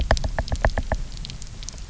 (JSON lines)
{"label": "biophony, knock", "recorder": "SoundTrap 300"}